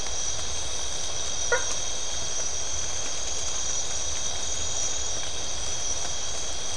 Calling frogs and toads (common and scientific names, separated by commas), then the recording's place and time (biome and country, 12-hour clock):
blacksmith tree frog (Boana faber)
Atlantic Forest, Brazil, 2:15am